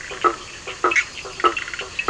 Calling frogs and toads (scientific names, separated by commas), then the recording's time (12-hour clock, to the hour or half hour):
Boana faber, Sphaenorhynchus surdus
~10pm